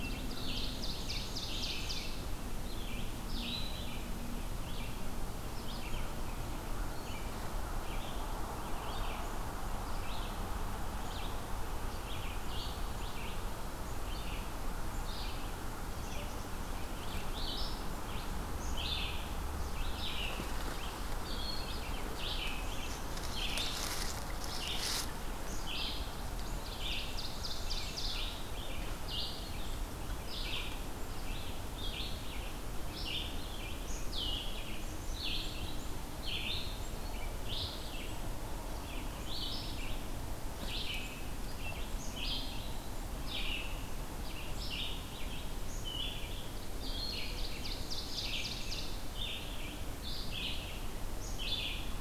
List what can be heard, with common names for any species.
Ovenbird, Red-eyed Vireo, Black-capped Chickadee